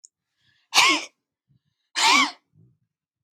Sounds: Sneeze